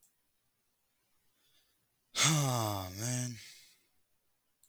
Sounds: Sigh